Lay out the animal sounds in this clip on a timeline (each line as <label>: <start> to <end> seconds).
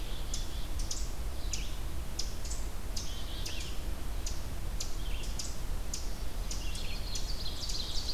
Black-capped Chickadee (Poecile atricapillus): 0.0 to 0.6 seconds
Ovenbird (Seiurus aurocapilla): 0.0 to 8.1 seconds
Red-eyed Vireo (Vireo olivaceus): 0.0 to 8.1 seconds
Black-capped Chickadee (Poecile atricapillus): 2.9 to 3.9 seconds